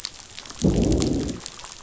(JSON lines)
{"label": "biophony, growl", "recorder": "SoundTrap 500"}